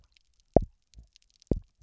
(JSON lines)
{"label": "biophony, double pulse", "recorder": "SoundTrap 300"}